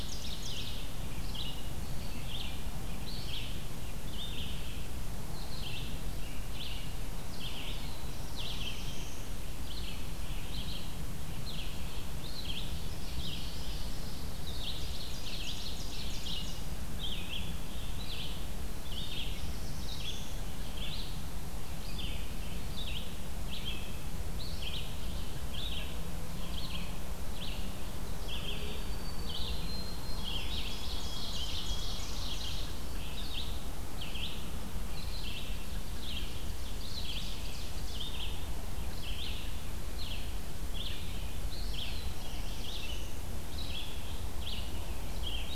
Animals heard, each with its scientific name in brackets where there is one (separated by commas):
Red-eyed Vireo (Vireo olivaceus), Black-throated Blue Warbler (Setophaga caerulescens), Ovenbird (Seiurus aurocapilla), White-throated Sparrow (Zonotrichia albicollis)